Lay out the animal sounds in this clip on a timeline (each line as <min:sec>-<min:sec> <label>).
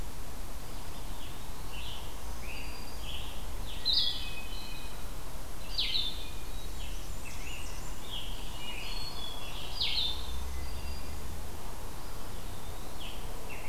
0:00.4-0:01.8 Eastern Wood-Pewee (Contopus virens)
0:01.5-0:03.4 Black-throated Green Warbler (Setophaga virens)
0:01.5-0:04.0 Scarlet Tanager (Piranga olivacea)
0:03.7-0:10.3 Blue-headed Vireo (Vireo solitarius)
0:03.9-0:05.1 Hermit Thrush (Catharus guttatus)
0:06.5-0:08.1 Blackburnian Warbler (Setophaga fusca)
0:06.6-0:09.7 Scarlet Tanager (Piranga olivacea)
0:08.6-0:09.8 Hermit Thrush (Catharus guttatus)
0:09.7-0:11.5 Black-throated Green Warbler (Setophaga virens)
0:11.8-0:13.3 Eastern Wood-Pewee (Contopus virens)